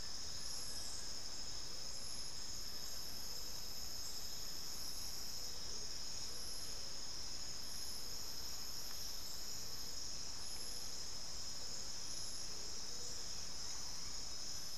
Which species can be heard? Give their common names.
Buff-throated Woodcreeper, Amazonian Motmot, unidentified bird